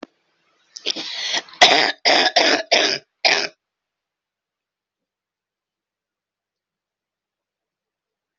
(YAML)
expert_labels:
- quality: good
  cough_type: wet
  dyspnea: false
  wheezing: false
  stridor: false
  choking: false
  congestion: false
  nothing: true
  diagnosis: lower respiratory tract infection
  severity: mild
age: 35
gender: female
respiratory_condition: false
fever_muscle_pain: false
status: symptomatic